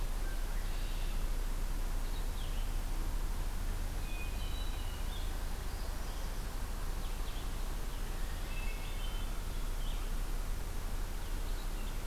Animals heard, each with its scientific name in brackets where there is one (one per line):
Northern Parula (Setophaga americana)
Blue-headed Vireo (Vireo solitarius)
Red-winged Blackbird (Agelaius phoeniceus)
Hermit Thrush (Catharus guttatus)